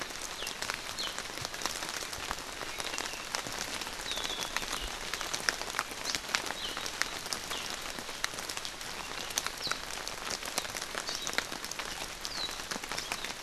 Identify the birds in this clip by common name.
Warbling White-eye, Hawaii Amakihi